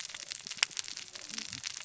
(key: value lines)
label: biophony, cascading saw
recorder: SoundTrap 600 or HydroMoth